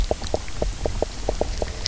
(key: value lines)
label: biophony, knock croak
recorder: SoundTrap 300